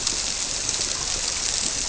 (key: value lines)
label: biophony
recorder: SoundTrap 300